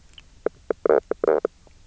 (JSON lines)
{"label": "biophony, knock croak", "recorder": "SoundTrap 300"}